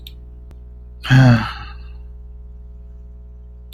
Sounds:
Sigh